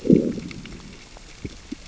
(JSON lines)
{"label": "biophony, growl", "recorder": "SoundTrap 600 or HydroMoth"}